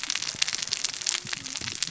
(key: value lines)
label: biophony, cascading saw
recorder: SoundTrap 600 or HydroMoth